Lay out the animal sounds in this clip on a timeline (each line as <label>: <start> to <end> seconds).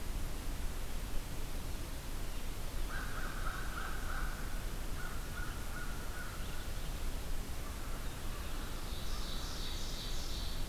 American Crow (Corvus brachyrhynchos): 2.8 to 7.0 seconds
American Crow (Corvus brachyrhynchos): 7.3 to 9.8 seconds
Ovenbird (Seiurus aurocapilla): 8.6 to 10.7 seconds